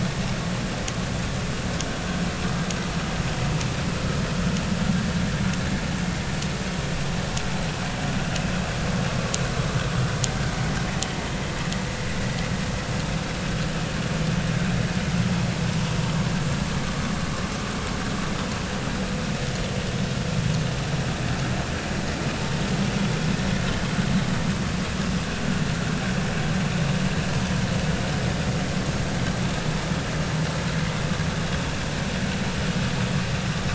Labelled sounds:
23.7	23.9	vessel noise, 3.0 to 3.3 kHz

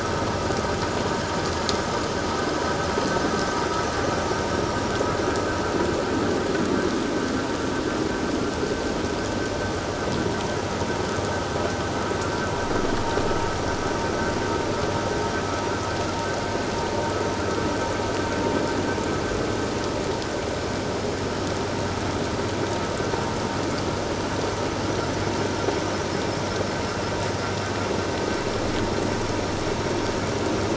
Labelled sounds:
4.4	4.8	vessel noise, 5.4 to 5.8 kHz

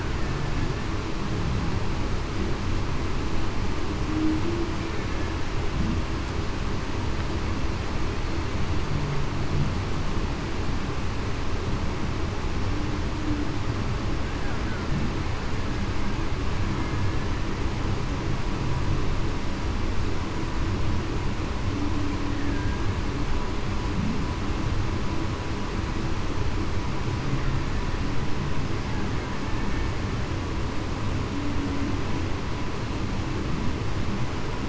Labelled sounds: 4.1	4.4	humpback whale, 0.23 to 0.35 kHz
22.5	22.9	killer whale, Bigg's (transient), 1.6 to 1.7 kHz

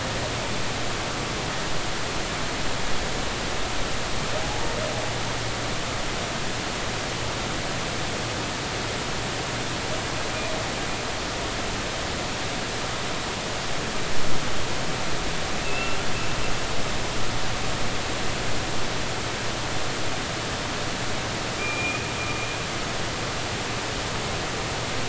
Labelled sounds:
4.4	4.7	humpback whale, 0.80 to 0.93 kHz
15.6	16.0	humpback whale, 2.5 to 2.8 kHz
21.6	22.1	humpback whale, 2.3 to 2.6 kHz

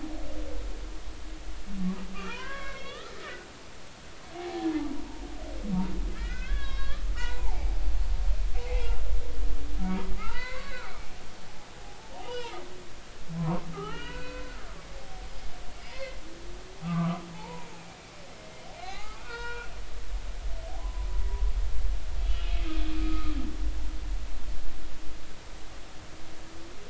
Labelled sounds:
2.1	4.0	humpback whale, 0.86 to 4.0 kHz
4.4	4.7	humpback whale, 0.80 to 0.86 kHz
6.2	7.8	humpback whale, 0.80 to 3.9 kHz
8.7	9.0	humpback whale, 2.6 to 2.8 kHz
9.8	11.0	humpback whale, 0.80 to 4.1 kHz
11.8	12.6	humpback whale, 0.80 to 3.0 kHz
13.4	14.6	humpback whale, 0.86 to 4.6 kHz
15.9	16.2	humpback whale, 2.0 to 2.2 kHz
16.8	17.7	humpback whale, 0.80 to 1.4 kHz
18.8	19.7	humpback whale, 0.80 to 4.4 kHz
20.8	21.1	humpback whale, 0.96 to 1.1 kHz
22.3	23.4	humpback whale, 1.2 to 3.1 kHz

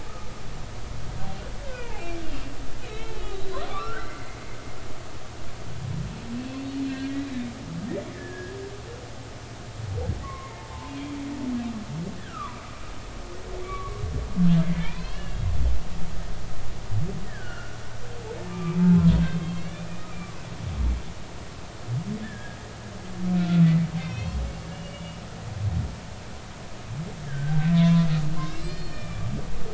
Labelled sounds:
0.1	0.3	humpback whale, 1.2 to 1.3 kHz
1.6	2.2	humpback whale, 1.4 to 2.6 kHz
2.9	3.3	humpback whale, 2.1 to 2.8 kHz
3.7	4.4	humpback whale, 1.0 to 2.2 kHz
6.6	7.1	humpback whale, 1.5 to 4.4 kHz
8.1	8.6	humpback whale, 1.6 to 1.9 kHz
10.2	10.6	humpback whale, 0.99 to 2.2 kHz
12.2	12.8	humpback whale, 0.93 to 1.9 kHz
13.6	14.0	humpback whale, 1.1 to 2.3 kHz
14.7	15.4	humpback whale, 0.86 to 2.9 kHz
17.3	18.8	humpback whale, 1.0 to 3.0 kHz
19.2	19.9	humpback whale, 2.0 to 2.9 kHz
22.2	22.6	humpback whale, 1.6 to 1.9 kHz
23.4	24.4	humpback whale, 1.3 to 6.0 kHz
24.7	25.2	humpback whale, 2.8 to 2.9 kHz
27.3	29.2	humpback whale, 0.96 to 8.0 kHz

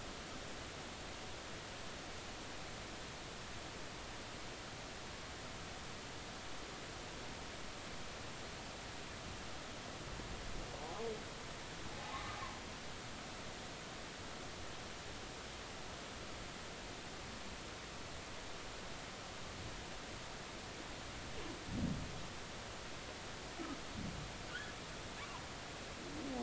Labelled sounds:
10.8	11.1	humpback whale, 0.80 to 0.93 kHz
12.0	12.4	humpback whale, 0.80 to 1.3 kHz
24.5	24.7	humpback whale, 1.4 to 1.8 kHz

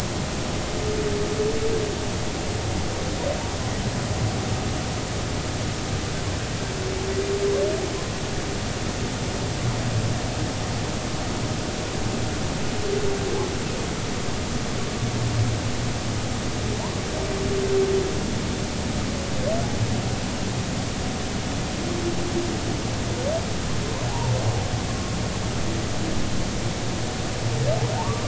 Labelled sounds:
24.1	24.3	humpback whale, 0.80 to 1.0 kHz
28.0	28.2	humpback whale, 0.80 to 1.2 kHz

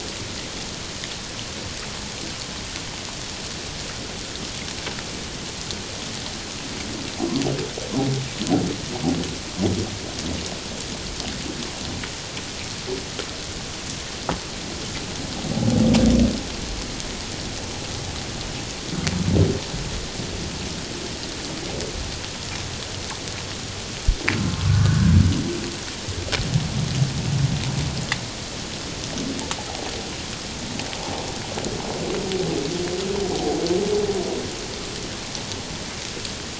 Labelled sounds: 24.7	25.2	humpback whale, 1.4 to 1.7 kHz

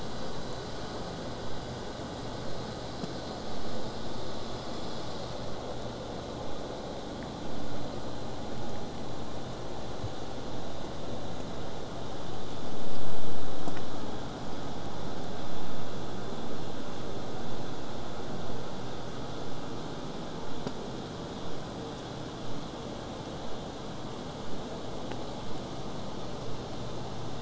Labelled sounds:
26.4	27.4	vessel noise, 0.15 to 7.5 kHz

